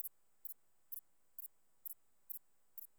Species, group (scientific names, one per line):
Thyreonotus corsicus
Orthoptera